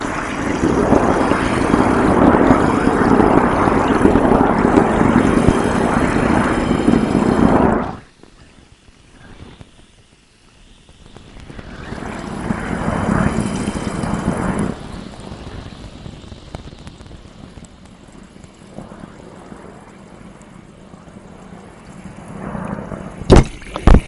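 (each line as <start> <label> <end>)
0.0 Water flows continuously with pulsating bubble sounds. 8.1
8.1 Water flows continuously with pulsating bubble sounds fading in and out. 24.1
23.3 Repeated loud, deep popping sounds with heavy bass. 24.1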